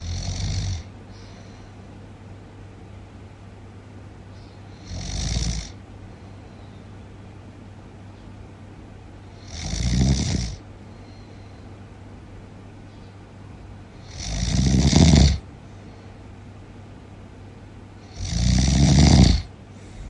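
Low, close snoring sounds. 0:00.0 - 0:01.0
Low, close snoring sounds. 0:04.8 - 0:06.0
Snoring. 0:09.3 - 0:11.0
Snoring loudly close by. 0:13.9 - 0:15.9
Snoring loudly close by. 0:18.1 - 0:20.1

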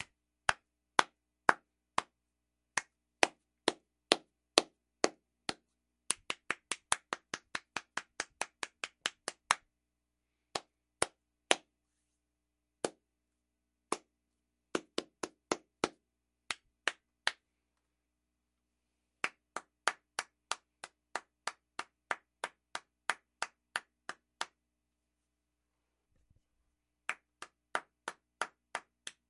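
Clapping. 0:00.5 - 0:02.1
Clapping. 0:02.8 - 0:05.6
A rhythmic clapping sound. 0:06.1 - 0:09.6
Clapping. 0:10.6 - 0:11.7
Clapping. 0:14.7 - 0:17.4
A rhythmic clapping sound. 0:19.3 - 0:24.5
Clapping. 0:27.0 - 0:29.3

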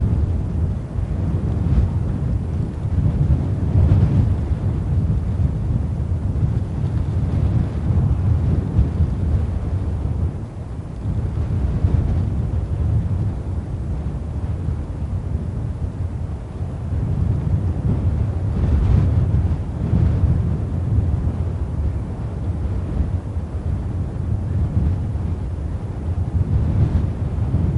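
Wind blowing constantly. 0:00.0 - 0:27.8

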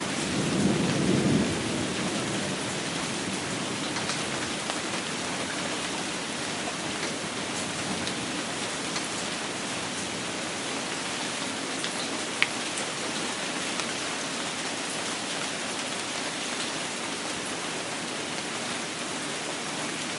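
Heavy rain drumming loudly and constantly. 0:00.0 - 0:20.2
A low, distant rumble of thunder fading slowly. 0:00.5 - 0:01.6

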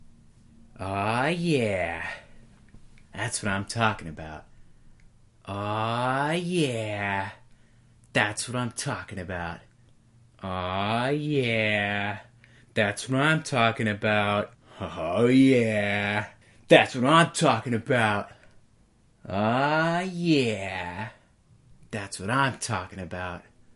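A man speaks happily at a medium volume. 0:00.6 - 0:02.3
A man speaks happily at a medium volume. 0:03.1 - 0:04.5
A man speaks happily at a medium volume. 0:05.4 - 0:07.3
A man speaks happily at a medium volume. 0:08.1 - 0:09.6
A man speaks happily at a medium volume. 0:10.4 - 0:16.3
A man speaks passionately nearby at a moderate volume. 0:16.6 - 0:18.3
A man speaks happily at a medium volume. 0:19.2 - 0:21.1
A man speaks happily at a medium volume. 0:21.8 - 0:23.4

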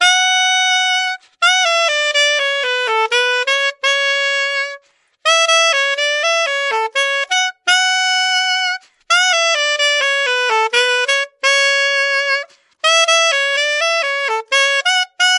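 Someone is playing the saxophone. 0:00.0 - 0:15.4

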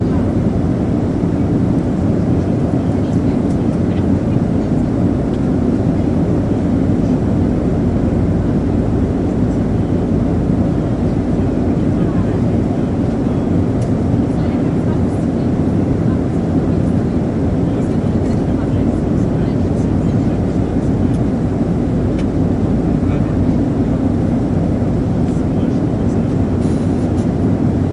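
Interior airplane ambiance with muffled engine and wind noise. 0:00.0 - 0:27.9
People are talking quietly. 0:00.0 - 0:27.9

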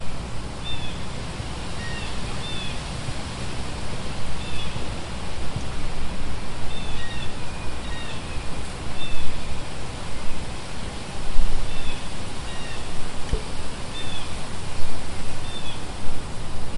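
Continuous low and mid-frequency soft white noise of ocean waves crashing. 0:00.0 - 0:16.8
A seagull chirps quietly in the distance. 0:00.6 - 0:01.0
A seagull chirps quietly in the distance. 0:01.7 - 0:02.8
Seagulls chirping quietly in the distance. 0:04.4 - 0:04.9
Seagulls chirping quietly in the distance. 0:06.7 - 0:08.3
A seagull chirps quietly in the distance. 0:08.9 - 0:09.3
A seagull chirps quietly in the distance. 0:11.7 - 0:12.9
A seagull chirps quietly in the distance. 0:13.9 - 0:14.5
A seagull chirps quietly in the distance. 0:15.4 - 0:15.9

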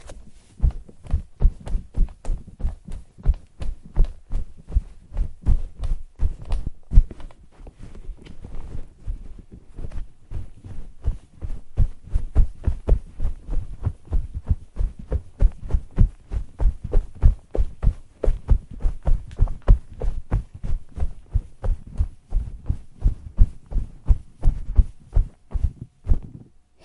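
Soft footsteps repeating inside a room. 0:00.0 - 0:26.8

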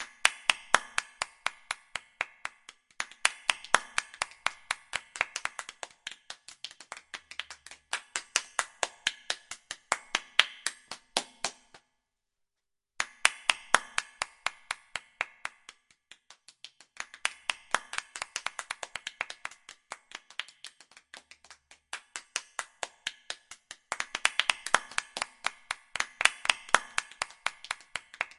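Multiple people clapping indoors with slight echo. 0:00.0 - 0:11.7
Multiple people clapping indoors with slight echo. 0:13.0 - 0:28.4

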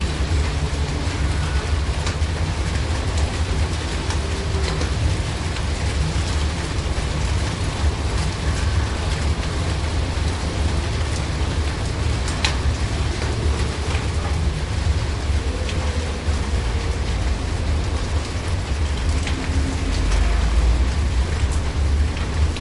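Continuous rainfall creating a steady and soothing water sound. 0:00.0 - 0:22.6

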